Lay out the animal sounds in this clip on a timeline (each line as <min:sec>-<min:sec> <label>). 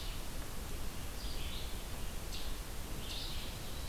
0:00.0-0:03.9 Red-eyed Vireo (Vireo olivaceus)